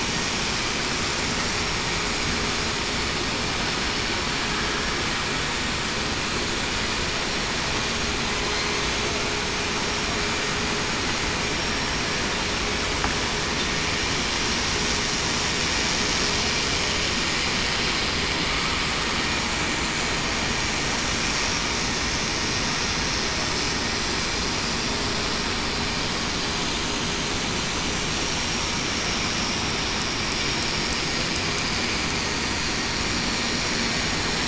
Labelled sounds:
11.5	11.9	vessel noise, 5.5 to 5.6 kHz

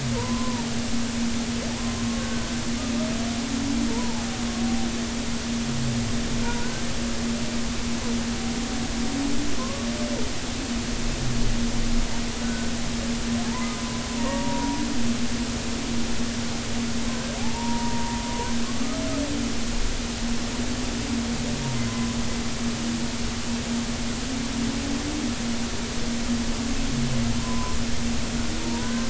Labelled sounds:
0.1	0.7	humpback whale, 0.83 to 1.2 kHz
2.2	2.5	humpback whale, 1.5 to 1.6 kHz
3.9	4.2	humpback whale, 0.80 to 1.1 kHz
9.6	9.9	humpback whale, 0.96 to 1.2 kHz
12.4	12.7	humpback whale, 1.4 to 1.6 kHz
13.7	14.8	humpback whale, 0.90 to 1.2 kHz
17.1	18.2	humpback whale, 0.80 to 1.6 kHz
21.9	22.2	humpback whale, 0.96 to 1.1 kHz
27.4	27.8	humpback whale, 0.96 to 1.1 kHz
28.6	29.0	humpback whale, 0.90 to 1.6 kHz

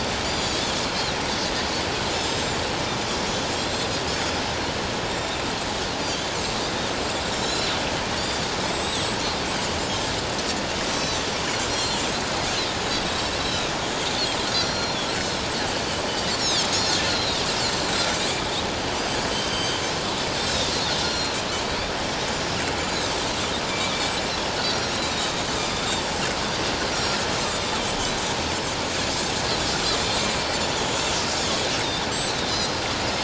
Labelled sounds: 2.2	2.6	Pacific white-sided dolphin, 3.6 to 7.7 kHz
3.5	3.9	Pacific white-sided dolphin, 7.3 to 7.6 kHz
5.1	5.3	Pacific white-sided dolphin, 7.2 to 7.4 kHz
7.3	7.7	Pacific white-sided dolphin, 3.8 to 7.4 kHz
8.2	8.5	Pacific white-sided dolphin, 3.4 to 7.2 kHz
8.7	10.0	Pacific white-sided dolphin, 3.2 to 7.8 kHz
10.9	12.0	Pacific white-sided dolphin, 3.8 to 6.1 kHz
13.4	13.7	Pacific white-sided dolphin, 3.7 to 4.0 kHz
14.6	15.0	Pacific white-sided dolphin, 4.2 to 7.1 kHz
16.3	17.4	Pacific white-sided dolphin, 3.1 to 5.6 kHz
17.9	18.2	Pacific white-sided dolphin, 7.4 to 7.7 kHz
19.3	19.8	Pacific white-sided dolphin, 3.0 to 7.9 kHz
20.4	21.3	Pacific white-sided dolphin, 3.5 to 5.7 kHz
24.6	26.1	Pacific white-sided dolphin, 3.4 to 5.8 kHz
26.9	27.8	Pacific white-sided dolphin, 3.5 to 5.7 kHz
29.1	29.4	Pacific white-sided dolphin, 7.3 to 7.9 kHz
31.4	32.7	Pacific white-sided dolphin, 3.2 to 7.8 kHz

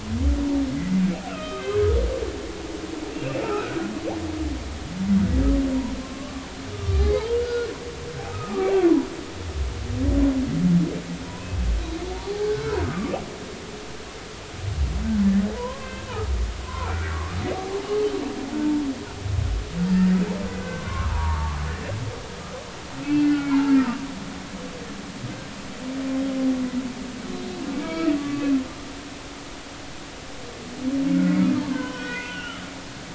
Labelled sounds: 0.7	1.8	humpback whale, 1.2 to 3.2 kHz
3.1	3.8	humpback whale, 1.2 to 2.8 kHz
6.0	7.7	humpback whale, 0.83 to 2.3 kHz
8.3	8.7	humpback whale, 1.1 to 1.3 kHz
11.3	13.2	humpback whale, 0.80 to 1.6 kHz
15.6	16.1	humpback whale, 0.93 to 1.6 kHz
16.6	17.4	humpback whale, 0.86 to 1.5 kHz
18.6	18.8	humpback whale, 0.86 to 0.96 kHz
20.5	21.6	humpback whale, 0.83 to 1.7 kHz
23.0	24.0	humpback whale, 0.80 to 2.9 kHz
27.3	28.5	humpback whale, 1.1 to 4.1 kHz
31.6	32.6	humpback whale, 0.86 to 5.6 kHz

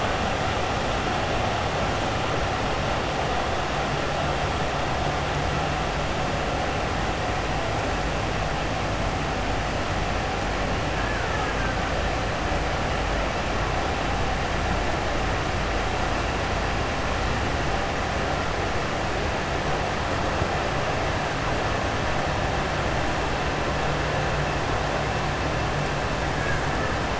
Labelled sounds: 11.0	11.7	killer whale, Bigg's (transient), 0.85 to 2.5 kHz

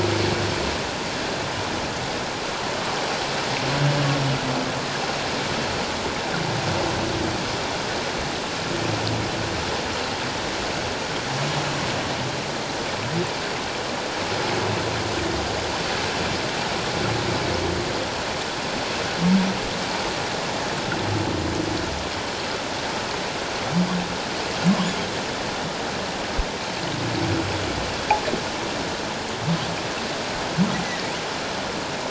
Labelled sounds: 30.8	31.1	humpback whale, 1.8 to 2.1 kHz

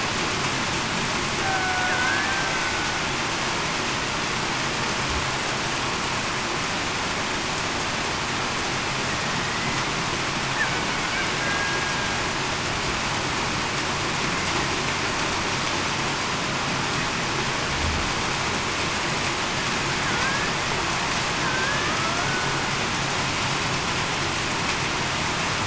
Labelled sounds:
1.4	2.3	killer whale, Bigg's (transient), 0.70 to 1.8 kHz
9.5	9.8	killer whale, Bigg's (transient), 1.9 to 2.1 kHz
11.4	11.8	killer whale, Bigg's (transient), 1.6 to 1.7 kHz
20.1	20.5	killer whale, Bigg's (transient), 1.4 to 1.8 kHz
21.4	21.9	killer whale, Bigg's (transient), 1.5 to 1.8 kHz

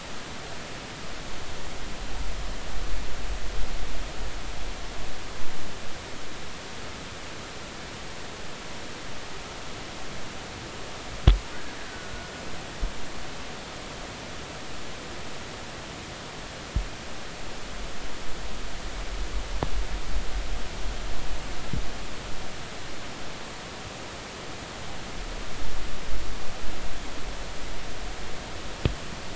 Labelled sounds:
11.9	12.3	killer whale, Bigg's (transient), 1.4 to 1.6 kHz

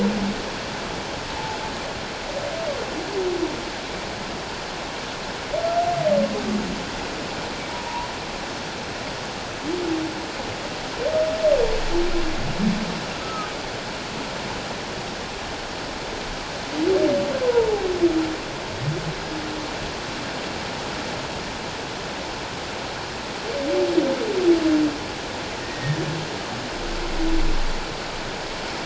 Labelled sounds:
7.7	8.1	humpback whale, 0.84 to 1.0 kHz
13.2	13.5	humpback whale, 1.2 to 1.4 kHz
17.4	17.8	humpback whale, 0.78 to 1.1 kHz
25.6	26.0	humpback whale, 1.8 to 1.9 kHz

